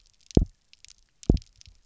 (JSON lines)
{"label": "biophony, double pulse", "recorder": "SoundTrap 300"}